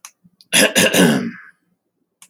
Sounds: Throat clearing